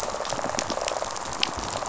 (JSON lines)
{"label": "biophony, rattle response", "recorder": "SoundTrap 500"}